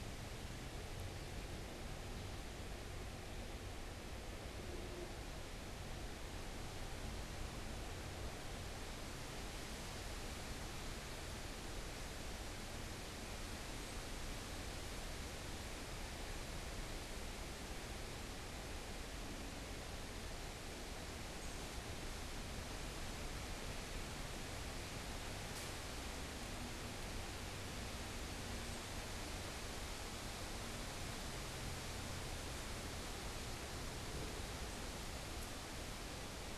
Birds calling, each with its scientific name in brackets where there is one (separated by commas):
Northern Cardinal (Cardinalis cardinalis)